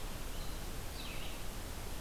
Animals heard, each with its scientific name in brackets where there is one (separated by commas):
Red-eyed Vireo (Vireo olivaceus)